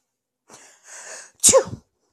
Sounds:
Sneeze